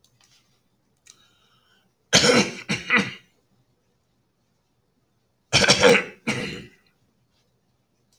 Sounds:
Throat clearing